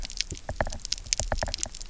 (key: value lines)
label: biophony, knock
recorder: SoundTrap 300